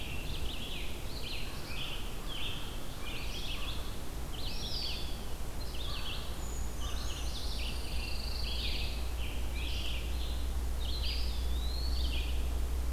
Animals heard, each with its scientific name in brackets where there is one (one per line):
Scarlet Tanager (Piranga olivacea)
Eastern Wood-Pewee (Contopus virens)
Red-eyed Vireo (Vireo olivaceus)
Pine Warbler (Setophaga pinus)
Blackpoll Warbler (Setophaga striata)
American Crow (Corvus brachyrhynchos)
Brown Creeper (Certhia americana)